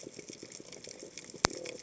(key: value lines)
label: biophony
recorder: HydroMoth